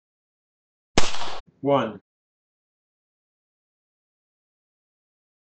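At 0.95 seconds, there is gunfire. Then at 1.64 seconds, a voice says "One."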